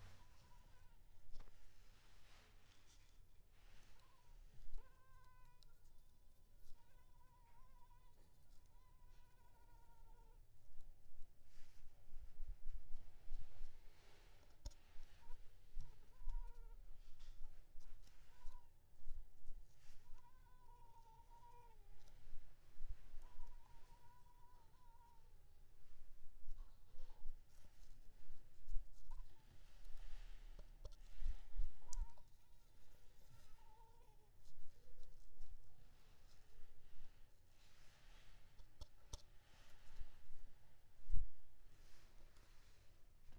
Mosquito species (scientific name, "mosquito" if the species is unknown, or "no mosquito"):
Culex pipiens complex